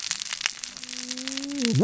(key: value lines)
label: biophony, cascading saw
recorder: SoundTrap 600 or HydroMoth